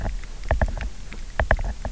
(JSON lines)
{"label": "biophony, knock", "recorder": "SoundTrap 300"}